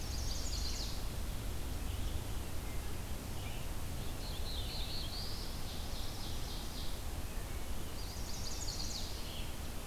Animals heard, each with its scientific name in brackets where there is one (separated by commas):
Red-eyed Vireo (Vireo olivaceus), Chestnut-sided Warbler (Setophaga pensylvanica), Black-throated Blue Warbler (Setophaga caerulescens), Ovenbird (Seiurus aurocapilla)